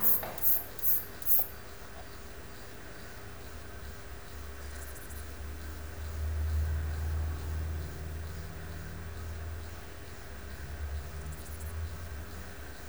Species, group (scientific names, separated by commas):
Antaxius kraussii, Orthoptera